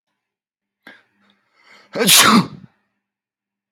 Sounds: Sneeze